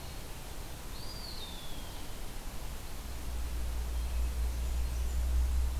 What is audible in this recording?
Eastern Wood-Pewee, Blackburnian Warbler